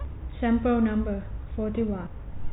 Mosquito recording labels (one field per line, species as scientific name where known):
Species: no mosquito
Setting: cup